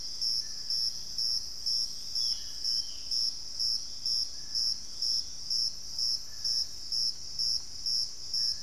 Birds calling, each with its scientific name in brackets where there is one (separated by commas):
Dusky-throated Antshrike (Thamnomanes ardesiacus), Ringed Antpipit (Corythopis torquatus), Thrush-like Wren (Campylorhynchus turdinus)